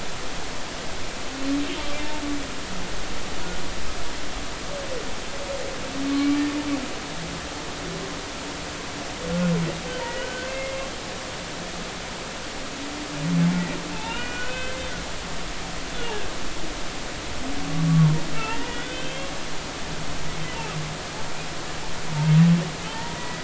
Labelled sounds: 10.0	10.8	humpback whale, 1.4 to 2.2 kHz
13.9	14.8	humpback whale, 0.83 to 3.1 kHz
18.3	19.3	humpback whale, 1.5 to 3.6 kHz
22.9	23.4	humpback whale, 0.83 to 2.0 kHz

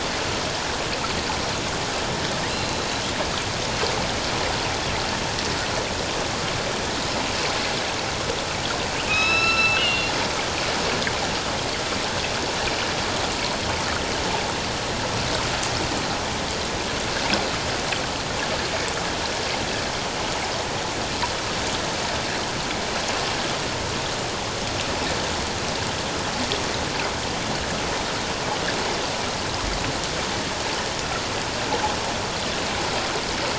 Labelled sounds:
2.5	2.9	killer whale, northern resident, A clan, AB subclan, 3.9 to 4.2 kHz
9.0	10.1	killer whale, northern resident, A clan, AB subclan, H01 pod, call N05i, 1.2 to 5.4 kHz

